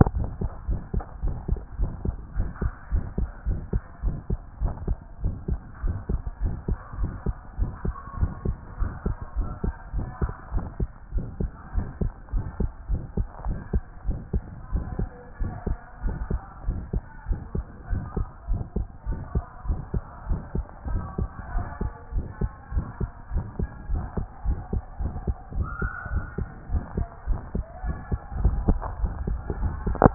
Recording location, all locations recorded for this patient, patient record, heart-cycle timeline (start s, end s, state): tricuspid valve (TV)
aortic valve (AV)+pulmonary valve (PV)+tricuspid valve (TV)+mitral valve (MV)
#Age: Child
#Sex: Male
#Height: 133.0 cm
#Weight: 24.8 kg
#Pregnancy status: False
#Murmur: Present
#Murmur locations: aortic valve (AV)+mitral valve (MV)+pulmonary valve (PV)+tricuspid valve (TV)
#Most audible location: pulmonary valve (PV)
#Systolic murmur timing: Early-systolic
#Systolic murmur shape: Decrescendo
#Systolic murmur grading: II/VI
#Systolic murmur pitch: Medium
#Systolic murmur quality: Harsh
#Diastolic murmur timing: nan
#Diastolic murmur shape: nan
#Diastolic murmur grading: nan
#Diastolic murmur pitch: nan
#Diastolic murmur quality: nan
#Outcome: Abnormal
#Campaign: 2014 screening campaign
0.14	0.28	S1
0.28	0.42	systole
0.42	0.50	S2
0.50	0.68	diastole
0.68	0.80	S1
0.80	0.94	systole
0.94	1.04	S2
1.04	1.24	diastole
1.24	1.36	S1
1.36	1.50	systole
1.50	1.60	S2
1.60	1.80	diastole
1.80	1.92	S1
1.92	2.06	systole
2.06	2.16	S2
2.16	2.38	diastole
2.38	2.50	S1
2.50	2.62	systole
2.62	2.72	S2
2.72	2.92	diastole
2.92	3.06	S1
3.06	3.22	systole
3.22	3.30	S2
3.30	3.48	diastole
3.48	3.60	S1
3.60	3.74	systole
3.74	3.82	S2
3.82	4.04	diastole
4.04	4.16	S1
4.16	4.30	systole
4.30	4.40	S2
4.40	4.62	diastole
4.62	4.74	S1
4.74	4.88	systole
4.88	4.98	S2
4.98	5.22	diastole
5.22	5.34	S1
5.34	5.50	systole
5.50	5.60	S2
5.60	5.82	diastole
5.82	5.96	S1
5.96	6.10	systole
6.10	6.22	S2
6.22	6.42	diastole
6.42	6.54	S1
6.54	6.68	systole
6.68	6.78	S2
6.78	7.00	diastole
7.00	7.12	S1
7.12	7.26	systole
7.26	7.36	S2
7.36	7.60	diastole
7.60	7.72	S1
7.72	7.86	systole
7.86	7.96	S2
7.96	8.18	diastole
8.18	8.30	S1
8.30	8.46	systole
8.46	8.56	S2
8.56	8.80	diastole
8.80	8.92	S1
8.92	9.06	systole
9.06	9.16	S2
9.16	9.38	diastole
9.38	9.50	S1
9.50	9.64	systole
9.64	9.74	S2
9.74	9.94	diastole
9.94	10.06	S1
10.06	10.22	systole
10.22	10.32	S2
10.32	10.54	diastole
10.54	10.64	S1
10.64	10.80	systole
10.80	10.90	S2
10.90	11.14	diastole
11.14	11.26	S1
11.26	11.40	systole
11.40	11.52	S2
11.52	11.76	diastole
11.76	11.88	S1
11.88	12.02	systole
12.02	12.12	S2
12.12	12.34	diastole
12.34	12.44	S1
12.44	12.58	systole
12.58	12.70	S2
12.70	12.90	diastole
12.90	13.02	S1
13.02	13.18	systole
13.18	13.26	S2
13.26	13.46	diastole
13.46	13.58	S1
13.58	13.74	systole
13.74	13.84	S2
13.84	14.06	diastole
14.06	14.18	S1
14.18	14.34	systole
14.34	14.46	S2
14.46	14.72	diastole
14.72	14.84	S1
14.84	15.00	systole
15.00	15.12	S2
15.12	15.38	diastole
15.38	15.52	S1
15.52	15.68	systole
15.68	15.80	S2
15.80	16.04	diastole
16.04	16.18	S1
16.18	16.32	systole
16.32	16.42	S2
16.42	16.66	diastole
16.66	16.80	S1
16.80	16.94	systole
16.94	17.04	S2
17.04	17.28	diastole
17.28	17.40	S1
17.40	17.56	systole
17.56	17.66	S2
17.66	17.90	diastole
17.90	18.04	S1
18.04	18.18	systole
18.18	18.28	S2
18.28	18.50	diastole
18.50	18.62	S1
18.62	18.76	systole
18.76	18.88	S2
18.88	19.08	diastole
19.08	19.20	S1
19.20	19.34	systole
19.34	19.44	S2
19.44	19.66	diastole
19.66	19.78	S1
19.78	19.94	systole
19.94	20.04	S2
20.04	20.28	diastole
20.28	20.40	S1
20.40	20.56	systole
20.56	20.66	S2
20.66	20.88	diastole
20.88	21.02	S1
21.02	21.20	systole
21.20	21.30	S2
21.30	21.52	diastole
21.52	21.66	S1
21.66	21.82	systole
21.82	21.92	S2
21.92	22.14	diastole
22.14	22.26	S1
22.26	22.42	systole
22.42	22.52	S2
22.52	22.74	diastole
22.74	22.86	S1
22.86	23.00	systole
23.00	23.10	S2
23.10	23.32	diastole
23.32	23.44	S1
23.44	23.60	systole
23.60	23.70	S2
23.70	23.90	diastole
23.90	24.04	S1
24.04	24.18	systole
24.18	24.26	S2
24.26	24.46	diastole
24.46	24.60	S1
24.60	24.74	systole
24.74	24.84	S2
24.84	25.02	diastole
25.02	25.12	S1
25.12	25.26	systole
25.26	25.36	S2
25.36	25.56	diastole
25.56	25.68	S1
25.68	25.82	systole
25.82	25.92	S2
25.92	26.12	diastole
26.12	26.24	S1
26.24	26.38	systole
26.38	26.48	S2
26.48	26.72	diastole
26.72	26.84	S1
26.84	26.98	systole
26.98	27.08	S2
27.08	27.28	diastole
27.28	27.40	S1
27.40	27.56	systole
27.56	27.66	S2
27.66	27.84	diastole
27.84	27.96	S1
27.96	28.10	systole
28.10	28.20	S2
28.20	28.38	diastole
28.38	28.56	S1
28.56	28.66	systole
28.66	28.82	S2
28.82	29.00	diastole
29.00	29.14	S1
29.14	29.28	systole
29.28	29.40	S2
29.40	29.60	diastole
29.60	29.74	S1
29.74	29.88	systole
29.88	30.00	S2
30.00	30.14	diastole